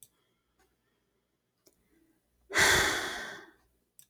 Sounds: Sigh